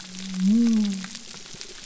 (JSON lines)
{"label": "biophony", "recorder": "SoundTrap 300"}